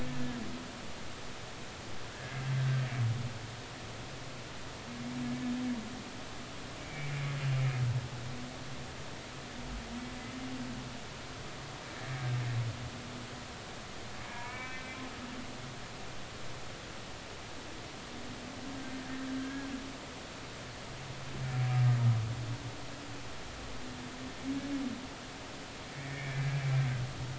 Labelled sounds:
2.1	2.8	humpback whale, 1.5 to 1.8 kHz
6.8	7.1	humpback whale, 2.0 to 2.4 kHz
14.3	14.9	humpback whale, 0.90 to 2.4 kHz
20.4	20.7	humpback whale, 1.6 to 1.8 kHz
25.9	26.4	humpback whale, 2.1 to 2.4 kHz

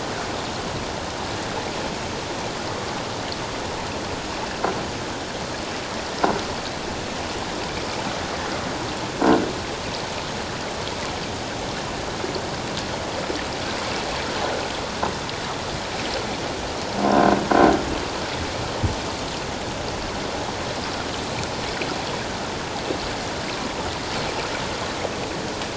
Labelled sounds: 17.1	17.4	croaking sound likely from a nearby submerged object, 1.4 to 1.6 kHz

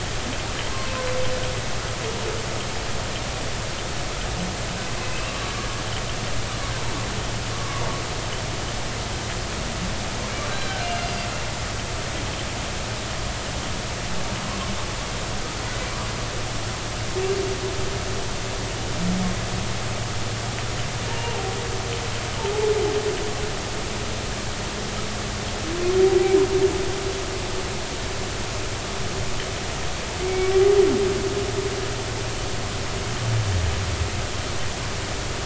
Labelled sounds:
5.0	5.3	humpback whale, 2.5 to 2.8 kHz
7.5	7.8	humpback whale, 0.99 to 1.2 kHz
10.5	11.1	humpback whale, 1.5 to 4.0 kHz
30.3	30.5	humpback whale, 2.2 to 2.3 kHz

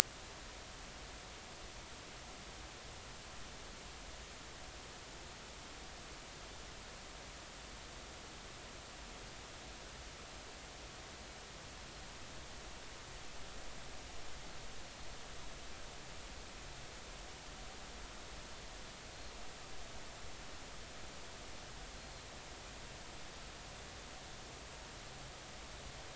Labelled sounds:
23.0	23.3	Pacific white-sided dolphin, 4.1 to 4.3 kHz

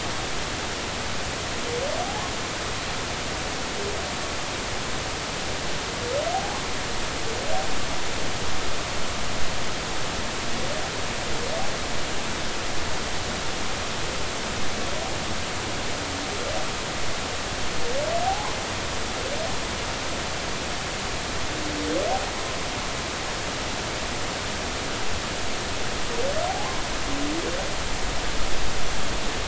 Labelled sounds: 6.3	6.6	humpback whale, 0.80 to 0.86 kHz
18.2	18.6	humpback whale, 0.80 to 1.1 kHz
26.5	26.7	humpback whale, 0.80 to 0.93 kHz

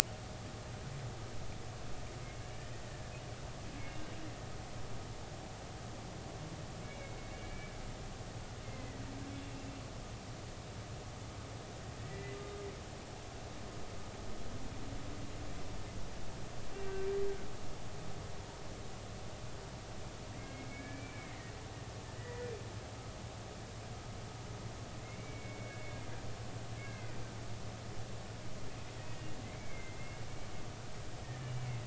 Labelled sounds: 3.9	4.1	humpback whale, 2.7 to 2.9 kHz
6.8	7.7	humpback whale, 2.1 to 2.4 kHz
8.6	9.0	humpback whale, 1.9 to 2.2 kHz
12.1	12.4	humpback whale, 1.8 to 2.0 kHz
16.7	17.1	humpback whale, 2.7 to 2.9 kHz
20.5	21.5	humpback whale, 1.6 to 2.4 kHz
22.2	22.5	humpback whale, 1.9 to 2.0 kHz
26.0	27.2	humpback whale, 1.4 to 2.3 kHz
29.5	30.2	humpback whale, 2.0 to 2.4 kHz
31.4	31.8	humpback whale, 2.0 to 2.9 kHz

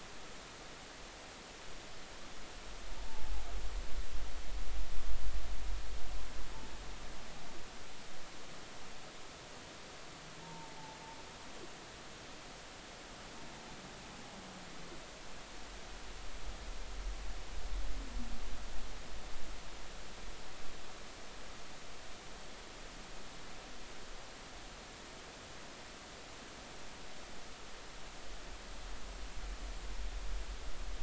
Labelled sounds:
3.0	3.3	humpback whale, 0.80 to 0.96 kHz
10.4	10.8	humpback whale, 0.86 to 0.96 kHz

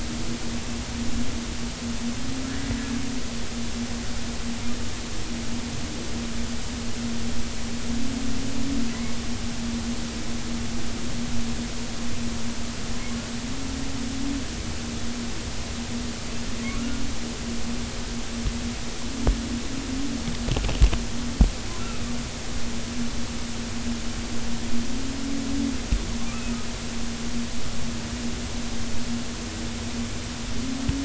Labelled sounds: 16.6	17.0	humpback whale, 1.1 to 1.5 kHz

